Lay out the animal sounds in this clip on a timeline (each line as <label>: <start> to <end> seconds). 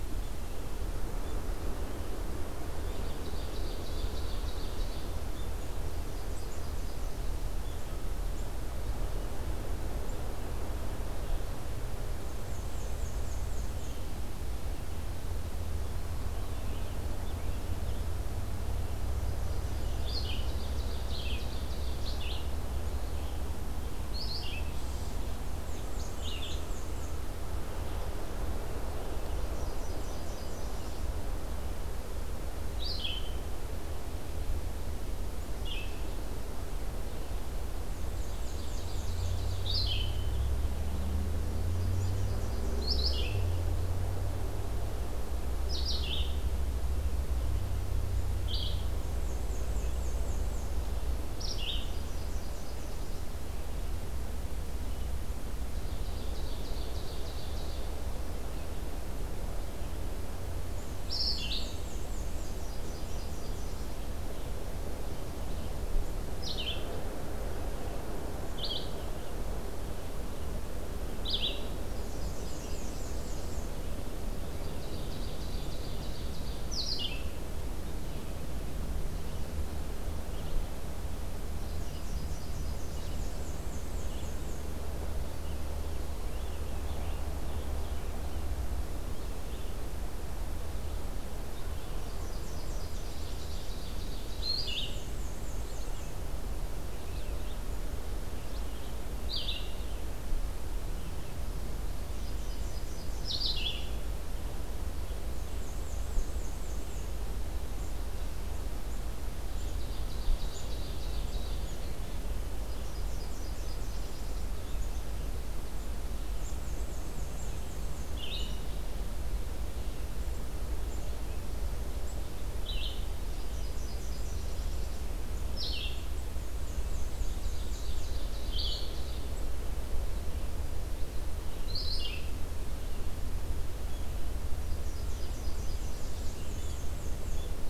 Ovenbird (Seiurus aurocapilla): 3.0 to 5.2 seconds
Nashville Warbler (Leiothlypis ruficapilla): 6.1 to 7.6 seconds
Black-and-white Warbler (Mniotilta varia): 12.4 to 14.0 seconds
Nashville Warbler (Leiothlypis ruficapilla): 19.1 to 20.4 seconds
Red-eyed Vireo (Vireo olivaceus): 19.9 to 22.5 seconds
Ovenbird (Seiurus aurocapilla): 20.2 to 22.2 seconds
Red-eyed Vireo (Vireo olivaceus): 24.1 to 24.8 seconds
Black-and-white Warbler (Mniotilta varia): 25.7 to 27.2 seconds
Red-eyed Vireo (Vireo olivaceus): 26.2 to 26.7 seconds
Nashville Warbler (Leiothlypis ruficapilla): 29.4 to 31.1 seconds
Red-eyed Vireo (Vireo olivaceus): 32.7 to 33.3 seconds
Red-eyed Vireo (Vireo olivaceus): 35.6 to 36.2 seconds
Black-and-white Warbler (Mniotilta varia): 37.9 to 39.8 seconds
Ovenbird (Seiurus aurocapilla): 38.2 to 39.7 seconds
Red-eyed Vireo (Vireo olivaceus): 39.6 to 40.3 seconds
Nashville Warbler (Leiothlypis ruficapilla): 41.7 to 42.8 seconds
Red-eyed Vireo (Vireo olivaceus): 42.7 to 43.4 seconds
Red-eyed Vireo (Vireo olivaceus): 45.7 to 46.3 seconds
Red-eyed Vireo (Vireo olivaceus): 48.4 to 48.9 seconds
Black-and-white Warbler (Mniotilta varia): 49.0 to 50.7 seconds
Red-eyed Vireo (Vireo olivaceus): 51.3 to 51.9 seconds
Nashville Warbler (Leiothlypis ruficapilla): 51.9 to 53.3 seconds
Ovenbird (Seiurus aurocapilla): 55.8 to 58.0 seconds
Black-and-white Warbler (Mniotilta varia): 60.8 to 62.5 seconds
Red-eyed Vireo (Vireo olivaceus): 61.0 to 61.8 seconds
Nashville Warbler (Leiothlypis ruficapilla): 62.5 to 64.2 seconds
Red-eyed Vireo (Vireo olivaceus): 66.4 to 66.9 seconds
Red-eyed Vireo (Vireo olivaceus): 68.4 to 68.9 seconds
Red-eyed Vireo (Vireo olivaceus): 71.2 to 71.6 seconds
Nashville Warbler (Leiothlypis ruficapilla): 71.8 to 73.6 seconds
Black-and-white Warbler (Mniotilta varia): 72.1 to 73.8 seconds
Ovenbird (Seiurus aurocapilla): 74.7 to 76.6 seconds
Red-eyed Vireo (Vireo olivaceus): 76.6 to 77.3 seconds
Nashville Warbler (Leiothlypis ruficapilla): 81.6 to 83.4 seconds
Black-and-white Warbler (Mniotilta varia): 83.2 to 84.7 seconds
Scarlet Tanager (Piranga olivacea): 85.7 to 88.2 seconds
Nashville Warbler (Leiothlypis ruficapilla): 92.2 to 93.9 seconds
Ovenbird (Seiurus aurocapilla): 93.2 to 94.7 seconds
Red-eyed Vireo (Vireo olivaceus): 94.3 to 95.1 seconds
Black-and-white Warbler (Mniotilta varia): 94.6 to 96.2 seconds
Red-eyed Vireo (Vireo olivaceus): 95.5 to 99.8 seconds
Nashville Warbler (Leiothlypis ruficapilla): 102.2 to 103.8 seconds
Red-eyed Vireo (Vireo olivaceus): 103.2 to 104.0 seconds
Black-and-white Warbler (Mniotilta varia): 105.4 to 107.2 seconds
Ovenbird (Seiurus aurocapilla): 109.5 to 111.7 seconds
Nashville Warbler (Leiothlypis ruficapilla): 112.8 to 114.6 seconds
Black-and-white Warbler (Mniotilta varia): 116.4 to 118.2 seconds
Red-eyed Vireo (Vireo olivaceus): 118.0 to 118.7 seconds
Red-eyed Vireo (Vireo olivaceus): 122.6 to 123.0 seconds
Nashville Warbler (Leiothlypis ruficapilla): 123.4 to 125.1 seconds
Red-eyed Vireo (Vireo olivaceus): 125.4 to 126.0 seconds
Black-and-white Warbler (Mniotilta varia): 126.5 to 128.2 seconds
Ovenbird (Seiurus aurocapilla): 127.4 to 129.3 seconds
Red-eyed Vireo (Vireo olivaceus): 128.4 to 128.9 seconds
Red-eyed Vireo (Vireo olivaceus): 131.6 to 132.2 seconds
Nashville Warbler (Leiothlypis ruficapilla): 134.8 to 136.4 seconds
Black-and-white Warbler (Mniotilta varia): 136.1 to 137.4 seconds